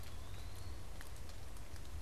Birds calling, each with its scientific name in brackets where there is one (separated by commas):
Eastern Wood-Pewee (Contopus virens)